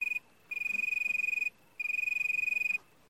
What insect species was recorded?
Oecanthus pellucens